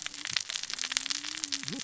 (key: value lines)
label: biophony, cascading saw
recorder: SoundTrap 600 or HydroMoth